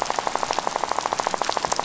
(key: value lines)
label: biophony, rattle
recorder: SoundTrap 500